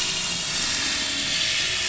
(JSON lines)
{"label": "anthrophony, boat engine", "recorder": "SoundTrap 500"}